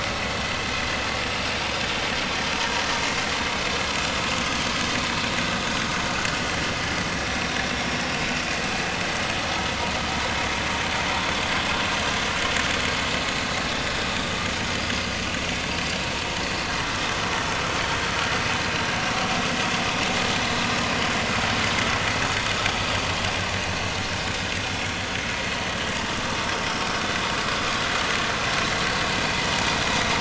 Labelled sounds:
15.4	15.6	vessel noise, 5.6 to 5.7 kHz
24.0	24.2	vessel noise, 5.1 to 5.3 kHz

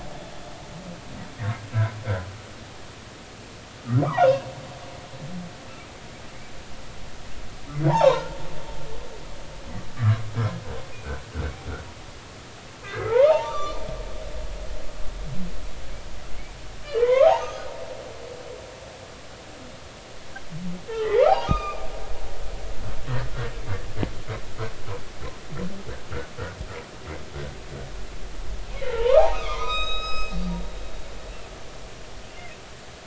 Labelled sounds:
4.2	4.5	humpback whale, 2.6 to 2.8 kHz
7.9	8.4	humpback whale, 0.80 to 3.9 kHz
10.0	10.2	humpback whale, 1.0 to 1.4 kHz
12.8	13.8	humpback whale, 0.80 to 3.6 kHz
16.8	17.7	humpback whale, 0.80 to 6.3 kHz
20.9	21.9	humpback whale, 0.80 to 6.3 kHz
28.9	30.4	humpback whale, 0.86 to 7.7 kHz

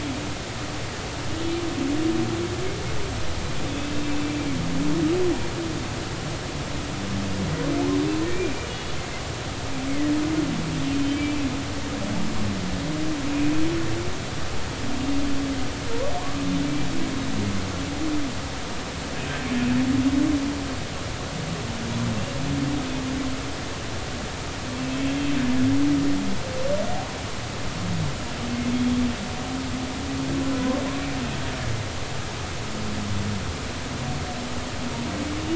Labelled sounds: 8.2	8.9	humpback whale, 2.2 to 3.5 kHz
11.1	11.4	humpback whale, 2.2 to 2.4 kHz
11.8	12.2	humpback whale, 3.0 to 3.2 kHz
16.2	16.4	humpback whale, 0.99 to 1.2 kHz
24.8	25.0	humpback whale, 2.6 to 2.7 kHz

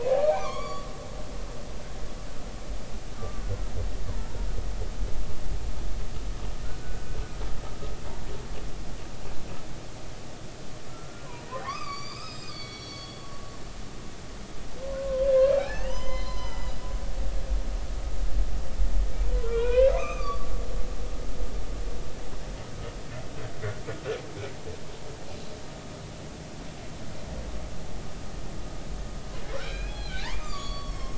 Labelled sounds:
0.2	0.9	humpback whale, 0.99 to 6.9 kHz
3.2	3.7	humpback whale, 1.1 to 1.5 kHz
6.6	7.1	humpback whale, 1.3 to 1.6 kHz
10.9	13.2	humpback whale, 0.96 to 7.6 kHz
15.0	16.8	humpback whale, 0.80 to 6.2 kHz
19.3	20.9	humpback whale, 0.93 to 6.4 kHz
29.6	31.1	humpback whale, 1.0 to 5.6 kHz

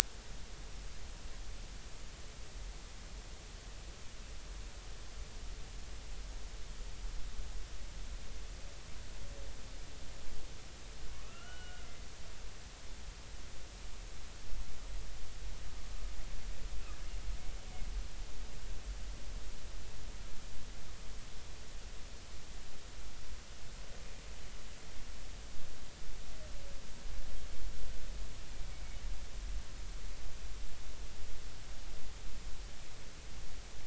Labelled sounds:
11.2	11.9	killer whale, Bigg's (transient), 1.1 to 3.0 kHz

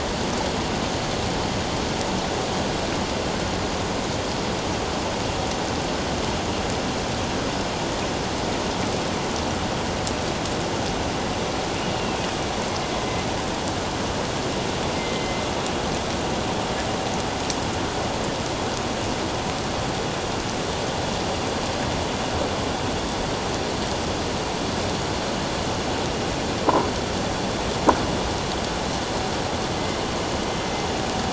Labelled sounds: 12.0	12.3	killer whale, northern resident, A clan, AA subclan, A04 pod, call N04, 2.5 to 2.8 kHz
14.9	15.5	killer whale, northern resident, A clan, AA subclan, A04 pod, 2.0 to 2.2 kHz

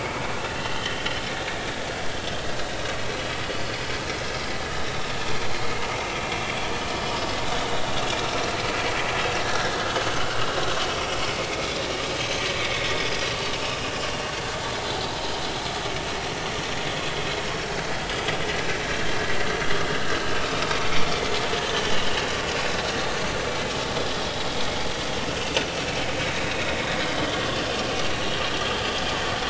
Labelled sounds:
0.6	1.1	vessel noise, 2.9 to 3.3 kHz
6.8	7.0	vessel noise, 2.9 to 3.1 kHz
8.4	8.6	vessel noise, 3.9 to 4.2 kHz
9.4	9.7	vessel noise, 1.5 to 1.8 kHz
10.3	10.5	vessel noise, 2.8 to 2.9 kHz
10.9	11.8	vessel noise, 2.0 to 5.9 kHz
12.8	14.4	vessel noise, 3.4 to 5.2 kHz
25.4	25.7	vessel noise, 2.5 to 2.8 kHz
26.4	26.7	vessel noise, 2.4 to 3.9 kHz

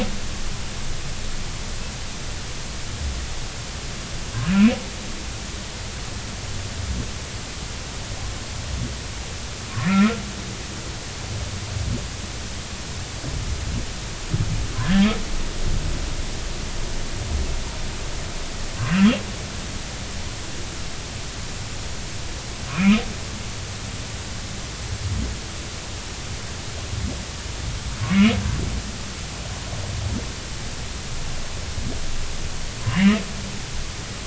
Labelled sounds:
4.5	4.7	humpback whale, 2.3 to 2.7 kHz
9.9	10.2	humpback whale, 1.2 to 1.5 kHz
14.8	15.1	humpback whale, 1.5 to 3.5 kHz
22.7	23.0	humpback whale, 2.1 to 2.6 kHz
32.9	33.1	humpback whale, 2.7 to 3.0 kHz

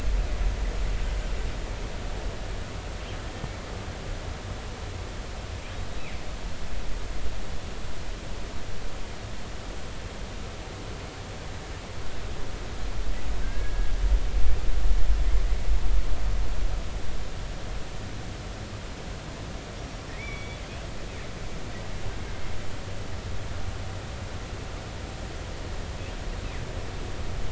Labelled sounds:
13.4	13.9	killer whale, northern resident, G clan, 1.5 to 1.7 kHz
20.2	20.6	killer whale, northern resident, G clan, GI subclan, call N23i, 2.1 to 3.6 kHz

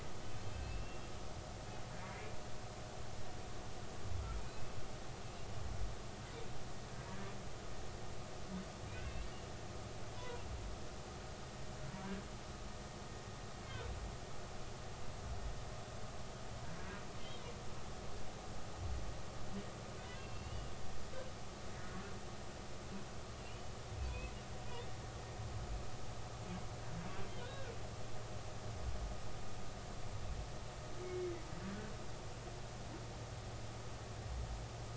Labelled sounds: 0.5	1.0	humpback whale, 2.5 to 2.8 kHz
4.4	4.8	humpback whale, 2.4 to 2.6 kHz
8.9	9.3	humpback whale, 2.3 to 2.8 kHz
10.2	10.4	humpback whale, 0.93 to 1.1 kHz
20.1	20.7	humpback whale, 2.6 to 3.0 kHz
23.3	24.3	humpback whale, 2.4 to 3.0 kHz
27.4	27.7	humpback whale, 1.4 to 3.9 kHz
31.0	31.3	humpback whale, 2.1 to 2.2 kHz

